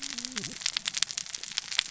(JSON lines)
{"label": "biophony, cascading saw", "recorder": "SoundTrap 600 or HydroMoth"}